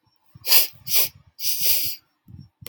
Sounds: Sniff